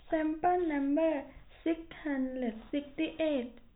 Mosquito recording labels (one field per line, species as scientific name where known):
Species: no mosquito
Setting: cup